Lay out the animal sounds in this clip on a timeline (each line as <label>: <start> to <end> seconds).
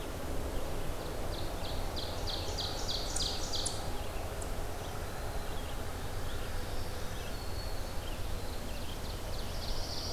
Red-eyed Vireo (Vireo olivaceus): 0.0 to 10.1 seconds
Ovenbird (Seiurus aurocapilla): 0.8 to 3.9 seconds
Eastern Chipmunk (Tamias striatus): 3.0 to 4.7 seconds
Black-throated Green Warbler (Setophaga virens): 6.4 to 8.1 seconds
Ovenbird (Seiurus aurocapilla): 8.1 to 10.1 seconds
Pine Warbler (Setophaga pinus): 9.3 to 10.1 seconds